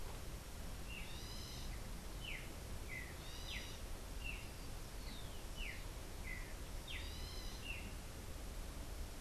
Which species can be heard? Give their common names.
Streaked Saltator